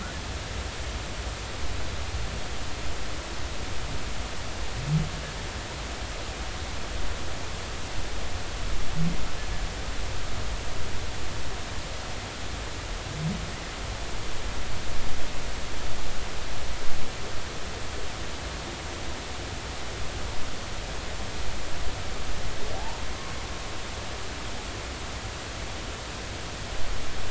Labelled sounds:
22.7	23.0	humpback whale, 0.80 to 1.0 kHz

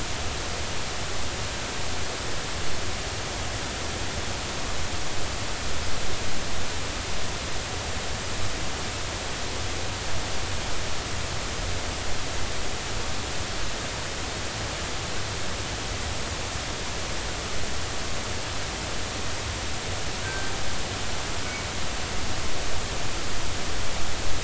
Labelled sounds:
20.2	20.5	killer whale, northern resident, G clan, call N24ii, 1.5 to 1.6 kHz

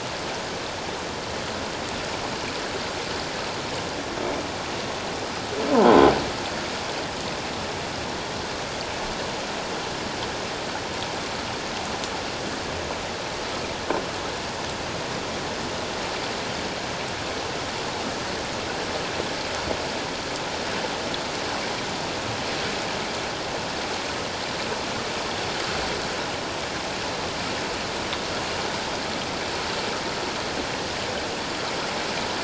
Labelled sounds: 5.7	6.1	croaking sound likely from a nearby submerged object, 0.81 to 1.1 kHz

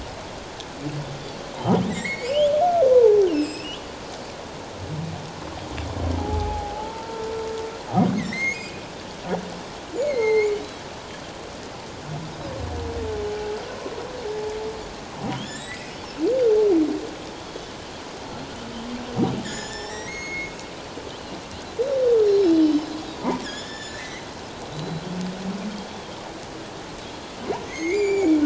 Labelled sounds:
1.5	2.5	humpback whale, 0.78 to 7.8 kHz
2.9	3.8	humpback whale, 0.78 to 7.8 kHz
6.2	7.3	humpback whale, 0.78 to 1.4 kHz
8.2	8.7	humpback whale, 1.8 to 6.9 kHz
10.0	10.6	humpback whale, 0.81 to 7.1 kHz
15.3	15.9	humpback whale, 1.6 to 7.9 kHz
17.4	17.7	Pacific white-sided dolphin, 3.2 to 3.5 kHz
19.4	20.5	humpback whale, 1.6 to 7.2 kHz
22.5	22.9	Pacific white-sided dolphin, 2.9 to 3.1 kHz
23.4	24.3	humpback whale, 1.6 to 7.1 kHz
24.7	25.0	Pacific white-sided dolphin, 3.8 to 4.1 kHz
27.7	28.4	humpback whale, 1.9 to 7.2 kHz

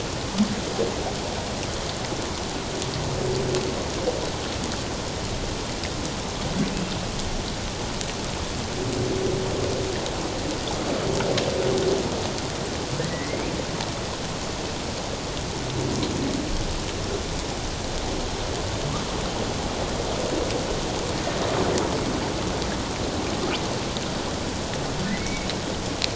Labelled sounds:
13.0	13.5	humpback whale, 1.9 to 2.6 kHz
25.2	25.5	humpback whale, 2.1 to 2.4 kHz

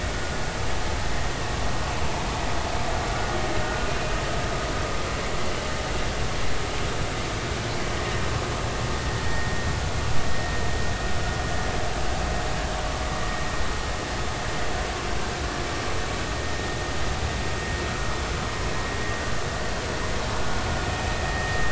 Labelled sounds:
0.1	0.4	vessel noise, 1.4 to 1.5 kHz
7.9	8.2	vessel noise, 1.8 to 2.0 kHz
9.2	9.7	vessel noise, 1.8 to 1.9 kHz
21.3	21.7	vessel noise, 1.8 to 2.0 kHz

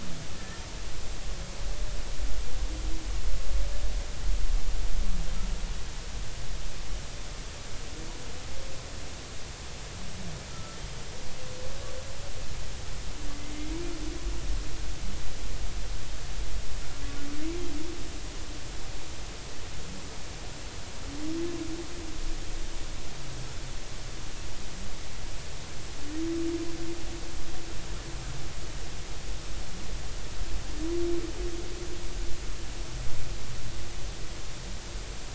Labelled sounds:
0.3	0.6	humpback whale, 1.7 to 1.9 kHz
10.5	10.8	humpback whale, 1.3 to 1.4 kHz

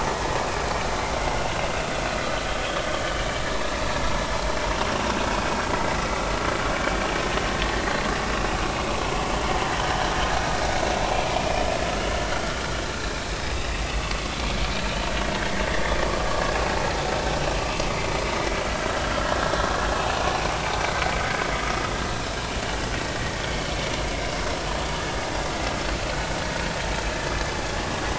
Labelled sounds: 5.6	6.0	vessel noise, 1.9 to 2.1 kHz
12.3	12.6	vessel noise, 1.3 to 1.5 kHz
19.0	19.3	vessel noise, 1.3 to 1.4 kHz

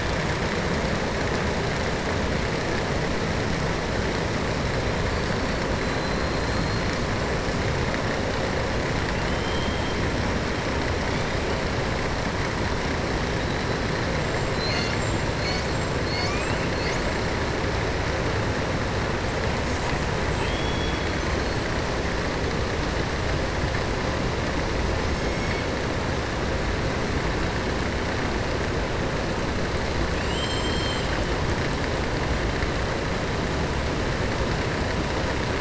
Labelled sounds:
9.2	9.9	killer whale, southern resident, 2.4 to 4.2 kHz
20.3	21.1	killer whale, southern resident, 2.1 to 3.4 kHz
30.1	31.1	killer whale, southern resident, 2.5 to 8.0 kHz

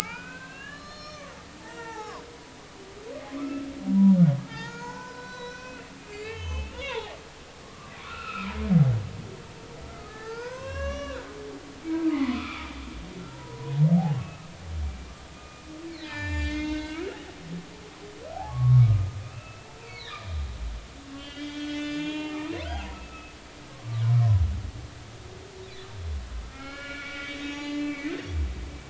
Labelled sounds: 0.4	2.2	humpback whale, 0.80 to 6.7 kHz
3.4	4.2	humpback whale, 0.93 to 1.4 kHz
4.5	7.2	humpback whale, 0.80 to 6.8 kHz
7.6	8.5	humpback whale, 1.0 to 2.8 kHz
9.9	12.7	humpback whale, 0.80 to 5.8 kHz
13.3	13.7	humpback whale, 0.90 to 1.1 kHz
14.2	14.4	humpback whale, 2.5 to 2.7 kHz
15.3	17.3	humpback whale, 0.83 to 7.2 kHz
18.3	20.2	humpback whale, 0.80 to 4.5 kHz
21.1	22.4	humpback whale, 1.4 to 6.8 kHz
22.7	24.4	humpback whale, 0.80 to 5.0 kHz
26.4	28.3	humpback whale, 0.83 to 4.7 kHz

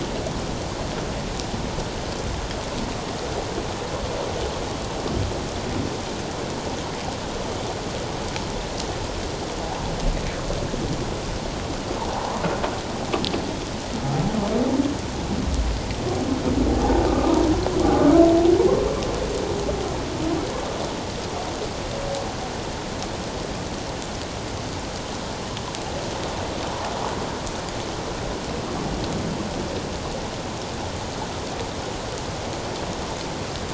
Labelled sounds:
17.1	17.4	humpback whale, 1.1 to 1.3 kHz

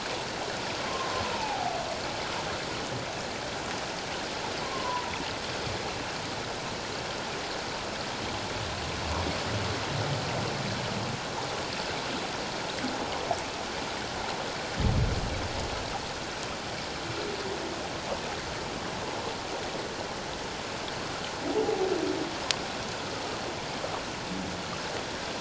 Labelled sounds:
1.3	1.7	humpback whale, 0.78 to 0.97 kHz
4.6	5.1	humpback whale, 0.91 to 1.1 kHz
21.6	21.9	humpback whale, 0.78 to 0.84 kHz

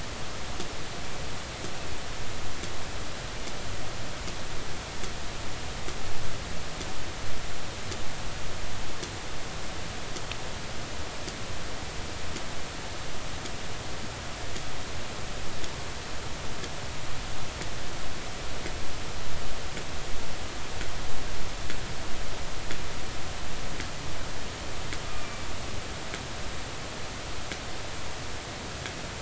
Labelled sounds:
25.1	25.5	killer whale, 2.3 to 2.5 kHz

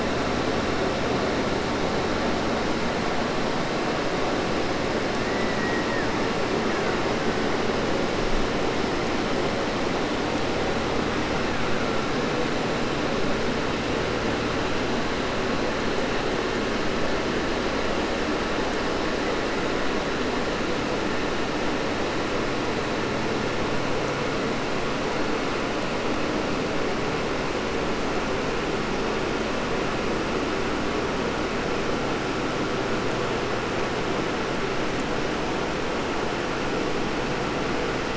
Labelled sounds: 5.0	6.2	killer whale, Bigg's (transient), 0.10 to 3.0 kHz
6.5	7.6	killer whale, Bigg's (transient), 0.74 to 3.3 kHz
11.0	12.2	killer whale, Bigg's (transient), 0.72 to 3.2 kHz

